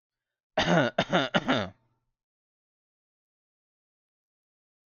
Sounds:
Cough